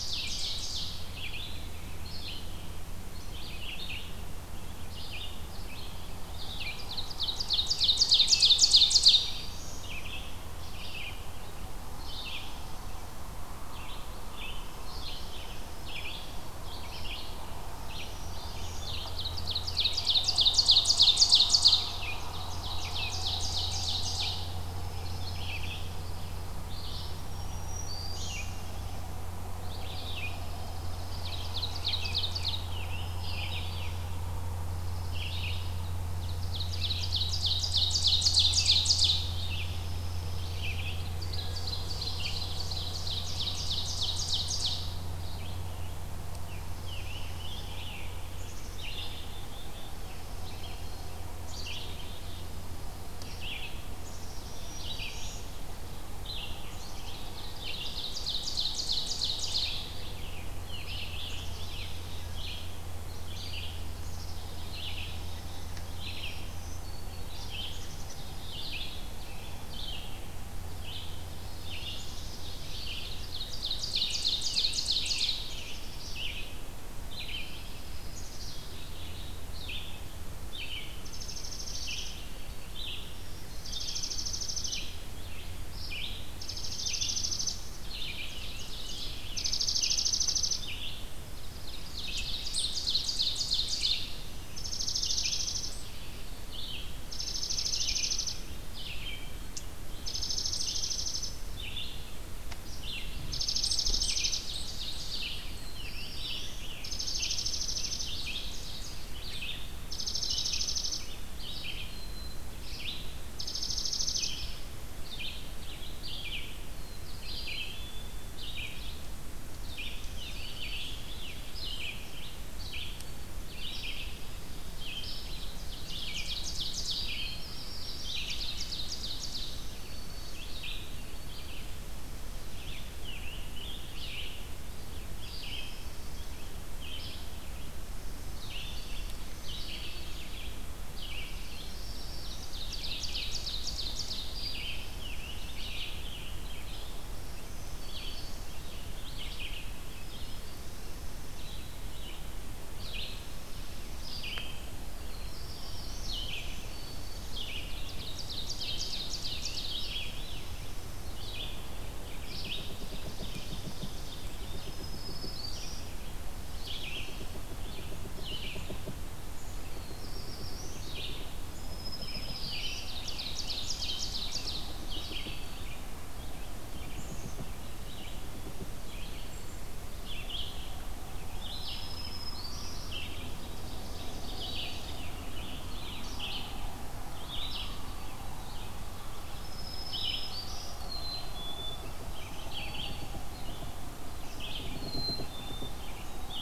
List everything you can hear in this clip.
Ovenbird, Red-eyed Vireo, Black-throated Green Warbler, Dark-eyed Junco, Scarlet Tanager, Black-capped Chickadee, Black-throated Blue Warbler, Eastern Wood-Pewee